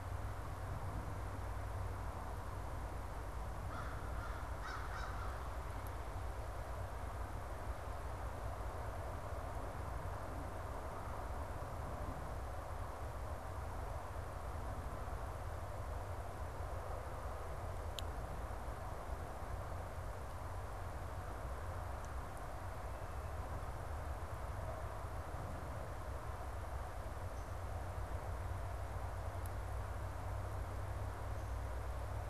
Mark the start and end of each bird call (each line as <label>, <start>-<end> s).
American Crow (Corvus brachyrhynchos), 3.4-5.4 s